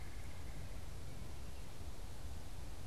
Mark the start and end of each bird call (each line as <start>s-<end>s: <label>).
0.0s-1.1s: Red-bellied Woodpecker (Melanerpes carolinus)